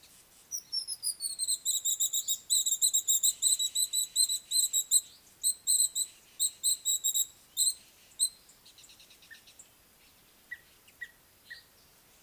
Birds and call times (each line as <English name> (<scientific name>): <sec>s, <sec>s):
Rufous Chatterer (Argya rubiginosa): 3.3s
Red-fronted Tinkerbird (Pogoniulus pusillus): 11.1s